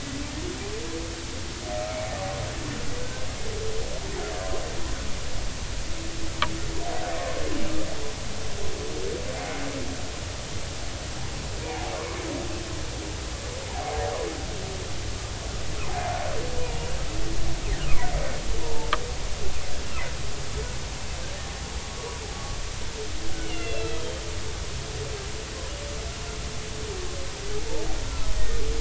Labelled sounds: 3.0	3.3	humpback whale, 1.5 to 1.6 kHz
9.4	9.6	humpback whale, 2.0 to 2.2 kHz
11.6	11.9	humpback whale, 0.80 to 0.99 kHz
16.6	16.9	humpback whale, 0.90 to 1.0 kHz
18.6	18.9	humpback whale, 0.83 to 1.0 kHz
23.4	24.2	humpback whale, 2.0 to 4.1 kHz
28.1	28.6	humpback whale, 1.2 to 1.9 kHz

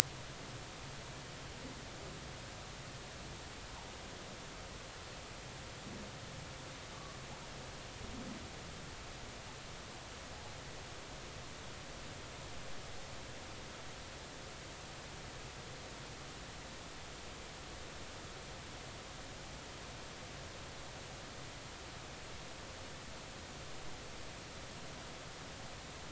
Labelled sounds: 6.9	7.2	humpback whale, 1.1 to 1.2 kHz

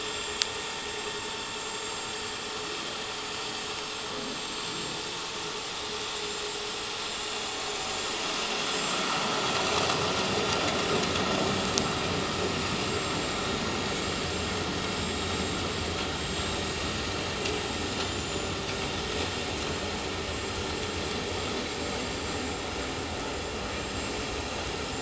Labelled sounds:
0.1	0.4	vessel noise, 7.4 to 7.5 kHz
2.0	2.2	vessel noise, 7.4 to 7.5 kHz
4.4	4.7	vessel noise, 7.4 to 7.6 kHz
7.2	7.5	vessel noise, 6.9 to 7.2 kHz
8.7	9.0	vessel noise, 7.3 to 7.4 kHz
10.8	11.1	vessel noise, 7.4 to 7.5 kHz
11.5	11.8	vessel noise, 7.4 to 7.5 kHz
12.9	13.2	vessel noise, 7.4 to 7.7 kHz
13.9	14.3	vessel noise, 7.3 to 7.6 kHz
14.8	15.4	vessel noise, 7.5 to 7.6 kHz
15.7	16.7	vessel noise, 6.5 to 7.7 kHz
17.5	18.6	vessel noise, 7.0 to 7.4 kHz

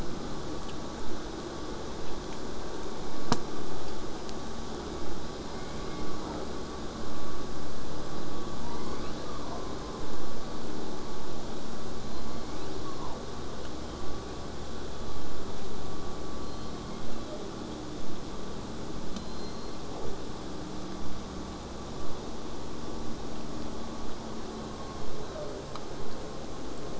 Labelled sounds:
0.0	5.0	vessel noise, 0 to 8.0 kHz
5.5	6.5	killer whale, southern resident, J pod, 0.25 to 4.0 kHz

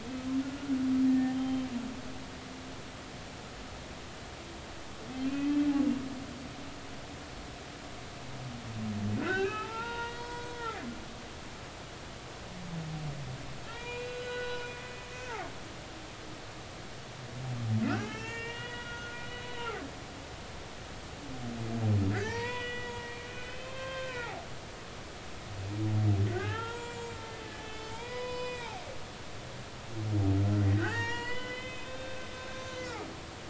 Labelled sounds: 1.1	1.7	humpback whale, 1.7 to 3.2 kHz
5.2	5.7	humpback whale, 2.4 to 2.7 kHz
9.2	10.6	humpback whale, 0.80 to 4.9 kHz
13.7	14.7	humpback whale, 0.90 to 6.8 kHz
15.2	15.5	humpback whale, 1.0 to 1.6 kHz
17.8	19.9	humpback whale, 0.80 to 4.0 kHz
22.1	24.5	humpback whale, 0.80 to 3.7 kHz
26.3	28.7	humpback whale, 0.83 to 8.0 kHz
30.8	32.2	humpback whale, 0.80 to 5.8 kHz
32.5	33.2	humpback whale, 2.5 to 2.7 kHz

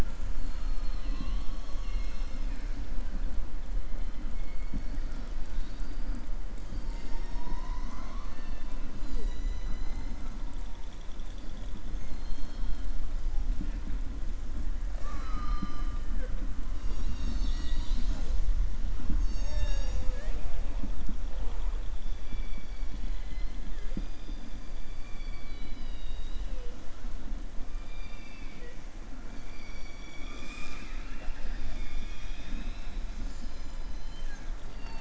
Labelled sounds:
12.0	12.9	killer whale, southern resident, 3.1 to 6.6 kHz
23.0	23.6	killer whale, southern resident, 2.0 to 5.2 kHz
24.7	26.7	killer whale, southern resident, 2.0 to 5.0 kHz
27.8	28.8	killer whale, southern resident, 0.49 to 4.8 kHz
33.0	34.5	killer whale, southern resident, 1.5 to 8.0 kHz

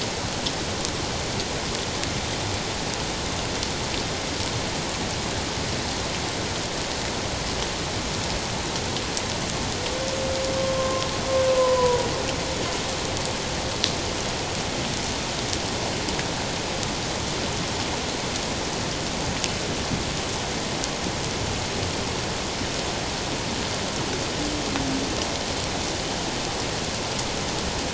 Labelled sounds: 10.7	12.1	humpback whale, 0.91 to 1.1 kHz

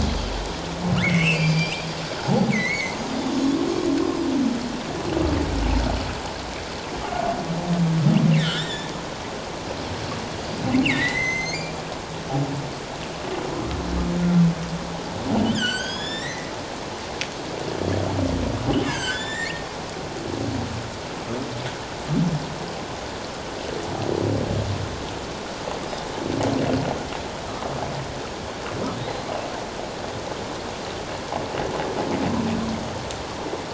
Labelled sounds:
1.1	1.8	humpback whale, 4.6 to 7.8 kHz
2.5	3.4	humpback whale, 1.9 to 3.7 kHz
8.4	8.9	humpback whale, 1.3 to 7.6 kHz
10.8	11.8	humpback whale, 1.8 to 6.5 kHz
15.4	16.5	humpback whale, 1.4 to 8.0 kHz
18.8	19.6	humpback whale, 1.4 to 7.5 kHz

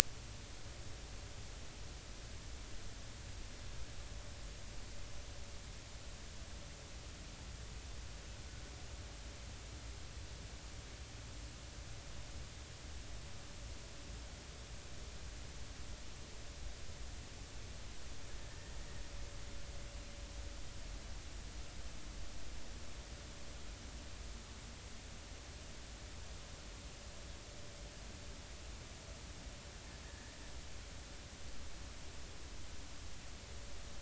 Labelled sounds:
18.5	18.7	killer whale, Bigg's (transient), 1.7 to 1.9 kHz
30.0	30.3	killer whale, Bigg's (transient), 1.7 to 1.9 kHz

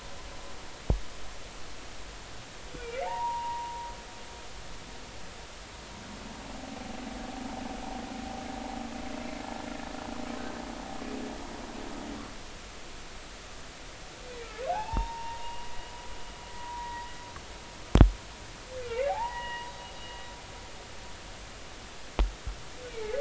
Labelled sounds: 3.0	3.9	humpback whale, 0.80 to 1.0 kHz
14.7	15.9	humpback whale, 0.80 to 4.9 kHz
16.6	17.1	humpback whale, 0.93 to 2.0 kHz
18.8	19.7	humpback whale, 0.80 to 2.9 kHz

